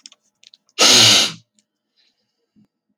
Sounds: Sniff